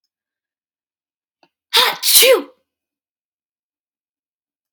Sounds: Sneeze